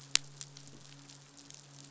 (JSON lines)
{"label": "biophony, midshipman", "recorder": "SoundTrap 500"}